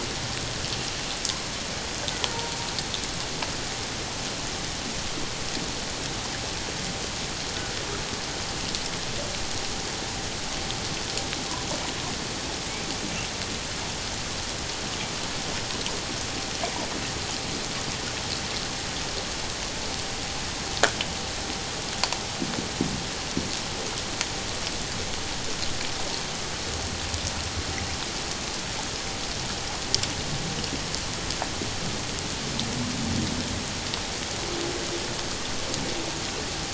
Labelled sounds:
2.3	2.6	humpback whale, 0.88 to 0.97 kHz

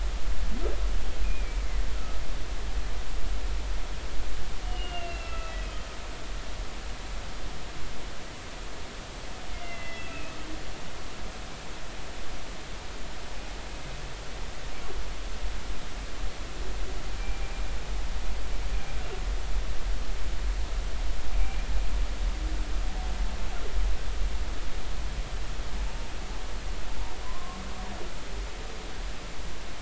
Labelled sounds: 1.2	1.6	humpback whale, 2.2 to 2.7 kHz
1.9	2.2	humpback whale, 1.2 to 1.5 kHz
4.6	5.6	humpback whale, 1.3 to 3.0 kHz
9.5	10.4	humpback whale, 2.0 to 3.4 kHz
17.2	17.5	humpback whale, 2.3 to 2.4 kHz
21.4	21.7	humpback whale, 2.3 to 2.5 kHz
27.2	27.6	humpback whale, 0.96 to 1.1 kHz

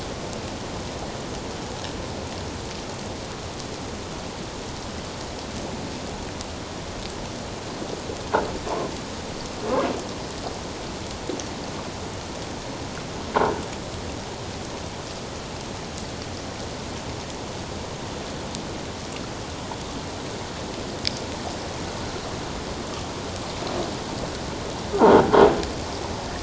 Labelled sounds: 13.3	13.6	croaking sound likely from a nearby submerged object, 0.84 to 1.1 kHz

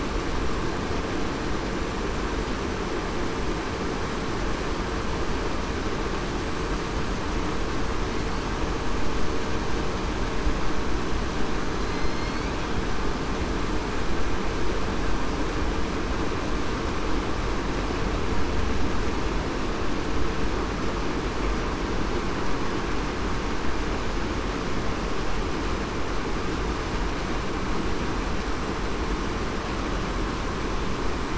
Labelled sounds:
11.8	12.4	killer whale, southern resident, 4.0 to 4.5 kHz

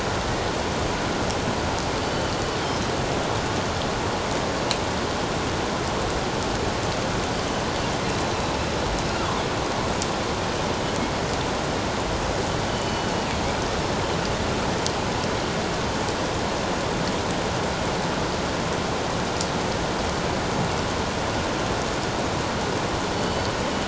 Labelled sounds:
2.0	2.3	killer whale, northern resident, G clan, 4.4 to 4.6 kHz
2.6	2.9	killer whale, northern resident, G clan, 5.1 to 5.3 kHz
8.0	8.6	killer whale, northern resident, G clan, 3.8 to 4.2 kHz
12.7	13.2	killer whale, northern resident, G clan, 2.9 to 4.5 kHz
23.1	23.5	killer whale, northern resident, G clan, 2.9 to 4.5 kHz

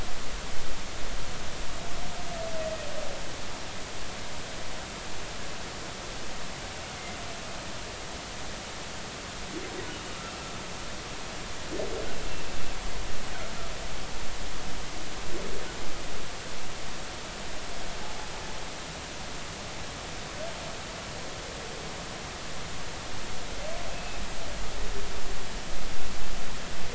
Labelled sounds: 23.9	24.2	humpback whale, 2.5 to 2.7 kHz

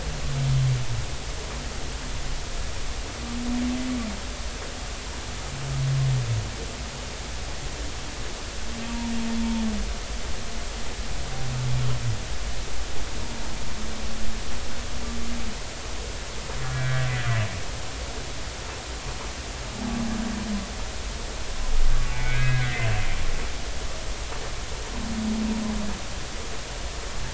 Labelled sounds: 16.6	17.1	humpback whale, 1.5 to 2.0 kHz
22.0	23.0	humpback whale, 1.4 to 3.8 kHz

